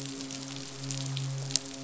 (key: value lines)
label: biophony, midshipman
recorder: SoundTrap 500